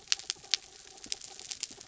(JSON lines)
{"label": "anthrophony, mechanical", "recorder": "SoundTrap 300"}